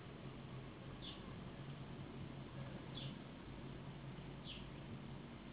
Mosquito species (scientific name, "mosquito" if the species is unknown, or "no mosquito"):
Anopheles gambiae s.s.